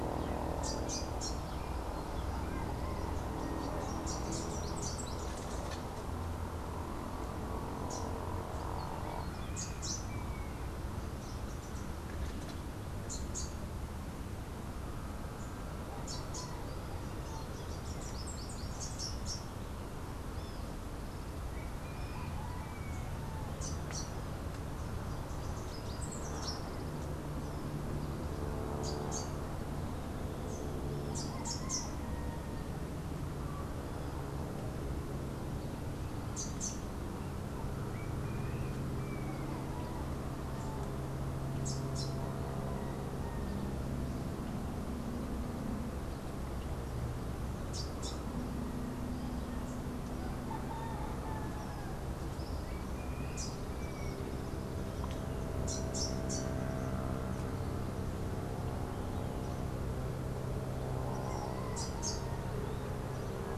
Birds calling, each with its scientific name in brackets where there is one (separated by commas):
Melodious Warbler (Hippolais polyglotta), Rufous-capped Warbler (Basileuterus rufifrons)